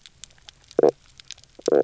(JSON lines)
{"label": "biophony, knock croak", "recorder": "SoundTrap 300"}